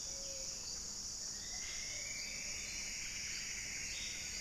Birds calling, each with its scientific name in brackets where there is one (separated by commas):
Thrush-like Wren (Campylorhynchus turdinus), Gray-fronted Dove (Leptotila rufaxilla), Plumbeous Antbird (Myrmelastes hyperythrus)